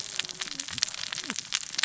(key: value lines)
label: biophony, cascading saw
recorder: SoundTrap 600 or HydroMoth